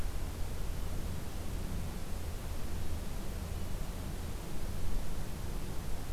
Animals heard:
forest ambience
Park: Acadia National Park